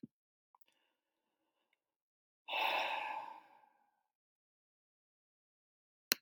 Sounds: Sigh